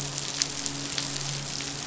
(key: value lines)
label: biophony, midshipman
recorder: SoundTrap 500